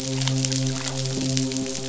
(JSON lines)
{"label": "biophony, midshipman", "recorder": "SoundTrap 500"}